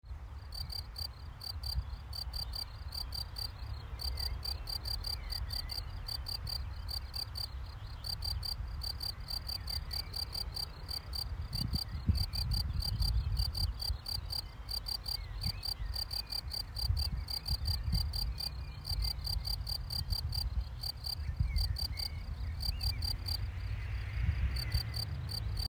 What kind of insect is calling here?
orthopteran